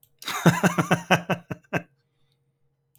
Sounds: Laughter